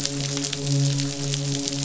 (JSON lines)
{"label": "biophony, midshipman", "recorder": "SoundTrap 500"}